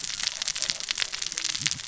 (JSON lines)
{"label": "biophony, cascading saw", "recorder": "SoundTrap 600 or HydroMoth"}